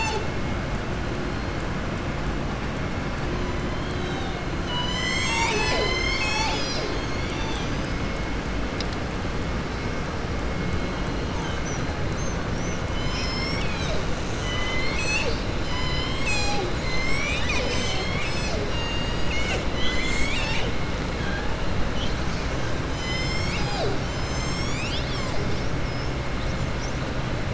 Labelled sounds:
14.3	15.5	killer whale, southern resident, 0.59 to 7.8 kHz
18.6	19.6	killer whale, southern resident, 0.67 to 7.9 kHz

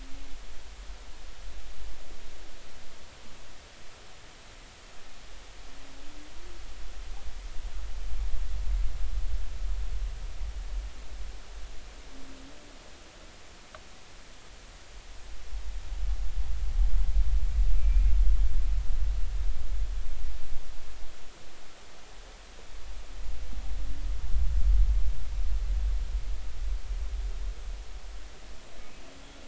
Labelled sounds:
17.8	18.1	humpback whale, 2.3 to 2.5 kHz

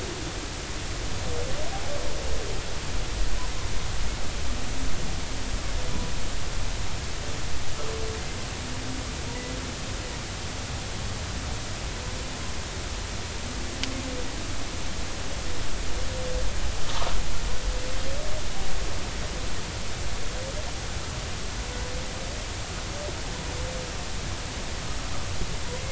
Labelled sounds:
16.8	17.1	humpback whale, 0.80 to 1.3 kHz

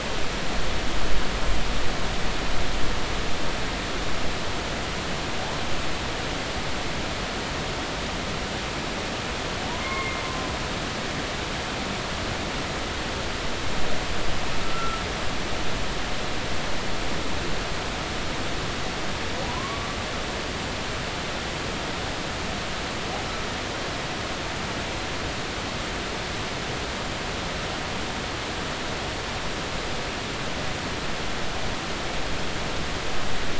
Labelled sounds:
9.6	10.2	humpback whale, 0.80 to 2.2 kHz
14.6	15.0	humpback whale, 1.3 to 1.4 kHz
19.5	19.9	humpback whale, 0.93 to 1.2 kHz

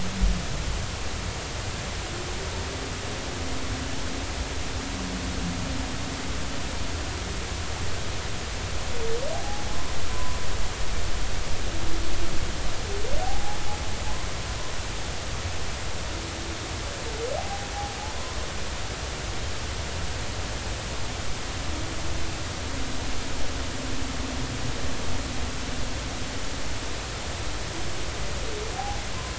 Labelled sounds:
9.3	9.7	humpback whale, 0.80 to 0.90 kHz
10.1	10.4	humpback whale, 0.96 to 1.1 kHz
13.2	13.6	humpback whale, 0.80 to 0.90 kHz
17.4	17.7	humpback whale, 0.80 to 0.86 kHz

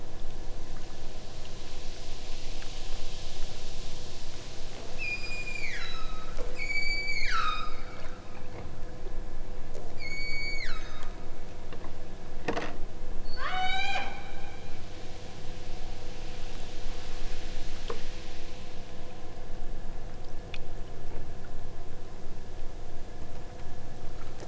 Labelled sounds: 5.0	7.9	killer whale, southern Alaska resident, 0.85 to 8.0 kHz
9.9	11.2	killer whale, southern Alaska resident, 0.85 to 8.0 kHz
13.3	14.3	killer whale, southern Alaska resident, 0.34 to 8.0 kHz

